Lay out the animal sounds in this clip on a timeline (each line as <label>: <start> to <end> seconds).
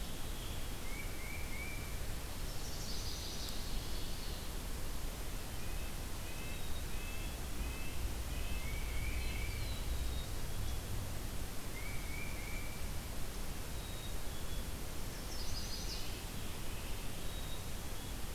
Tufted Titmouse (Baeolophus bicolor): 0.7 to 2.1 seconds
Chestnut-sided Warbler (Setophaga pensylvanica): 2.3 to 3.6 seconds
Red-breasted Nuthatch (Sitta canadensis): 5.5 to 8.7 seconds
Black-capped Chickadee (Poecile atricapillus): 6.3 to 7.5 seconds
Tufted Titmouse (Baeolophus bicolor): 8.4 to 9.7 seconds
Black-throated Blue Warbler (Setophaga caerulescens): 8.8 to 10.7 seconds
Tufted Titmouse (Baeolophus bicolor): 11.7 to 13.0 seconds
Black-capped Chickadee (Poecile atricapillus): 13.5 to 14.8 seconds
Chestnut-sided Warbler (Setophaga pensylvanica): 14.9 to 16.2 seconds
Black-capped Chickadee (Poecile atricapillus): 17.1 to 18.2 seconds